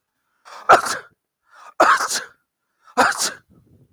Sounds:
Sneeze